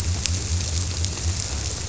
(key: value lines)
label: biophony
recorder: SoundTrap 300